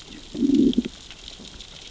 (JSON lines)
{"label": "biophony, growl", "recorder": "SoundTrap 600 or HydroMoth"}